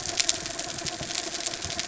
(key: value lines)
label: anthrophony, mechanical
recorder: SoundTrap 300